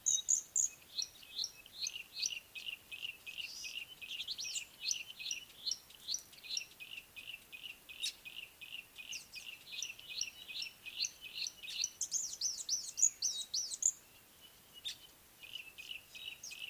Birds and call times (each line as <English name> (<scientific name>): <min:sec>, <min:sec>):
Yellow-breasted Apalis (Apalis flavida): 0:03.0, 0:07.6
Red-fronted Prinia (Prinia rufifrons): 0:04.5, 0:13.0
Village Weaver (Ploceus cucullatus): 0:08.1, 0:14.9